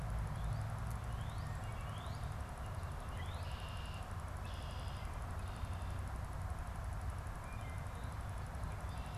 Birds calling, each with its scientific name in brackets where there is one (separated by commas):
Northern Cardinal (Cardinalis cardinalis), Red-winged Blackbird (Agelaius phoeniceus)